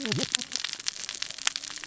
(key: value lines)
label: biophony, cascading saw
recorder: SoundTrap 600 or HydroMoth